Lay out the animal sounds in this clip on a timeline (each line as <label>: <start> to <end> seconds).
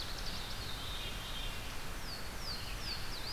Louisiana Waterthrush (Parkesia motacilla): 0.0 to 0.8 seconds
Veery (Catharus fuscescens): 0.4 to 1.6 seconds
Louisiana Waterthrush (Parkesia motacilla): 1.7 to 3.3 seconds